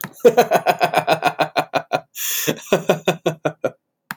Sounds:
Laughter